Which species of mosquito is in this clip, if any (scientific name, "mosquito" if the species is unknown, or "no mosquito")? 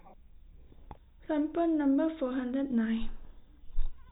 no mosquito